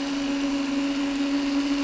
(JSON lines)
{"label": "anthrophony, boat engine", "recorder": "SoundTrap 300"}